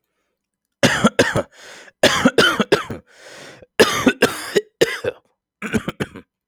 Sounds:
Cough